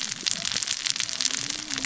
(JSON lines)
{"label": "biophony, cascading saw", "recorder": "SoundTrap 600 or HydroMoth"}